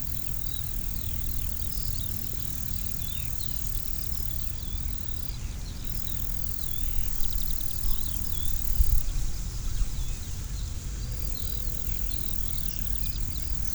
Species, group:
Bicolorana bicolor, Orthoptera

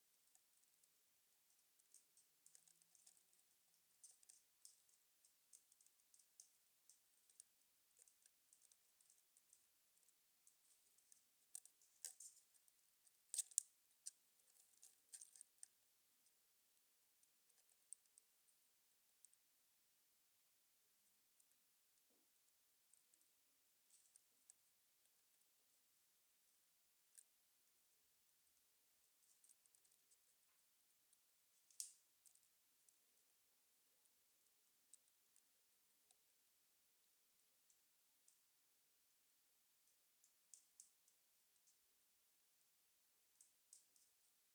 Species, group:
Isophya obtusa, Orthoptera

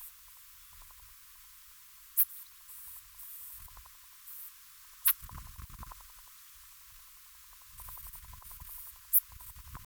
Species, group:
Steropleurus andalusius, Orthoptera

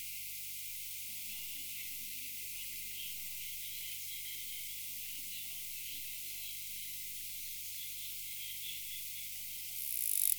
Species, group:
Poecilimon nobilis, Orthoptera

